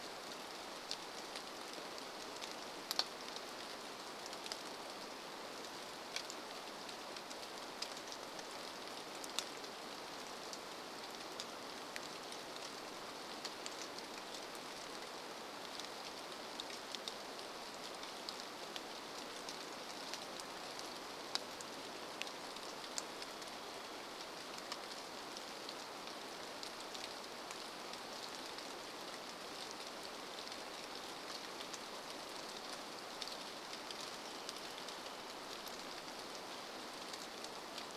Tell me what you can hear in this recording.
rain, Varied Thrush song